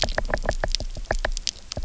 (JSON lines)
{"label": "biophony, knock", "recorder": "SoundTrap 300"}